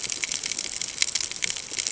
{"label": "ambient", "recorder": "HydroMoth"}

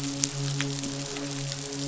{"label": "biophony, midshipman", "recorder": "SoundTrap 500"}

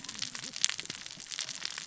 {"label": "biophony, cascading saw", "recorder": "SoundTrap 600 or HydroMoth"}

